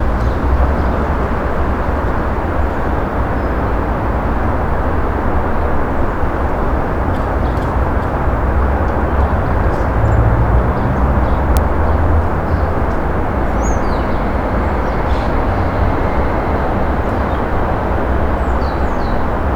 Is this outdoors?
yes